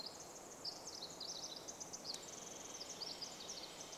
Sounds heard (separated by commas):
unidentified sound, Pacific Wren song